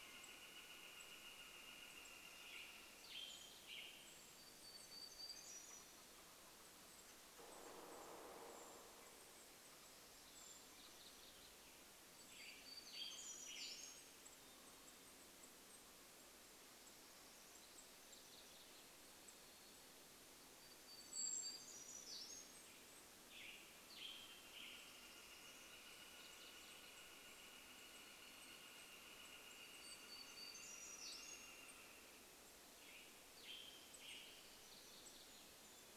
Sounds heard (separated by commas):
Western Tanager song, Golden-crowned Kinglet call, Northern Flicker call, warbler song, Canada Jay call, woodpecker drumming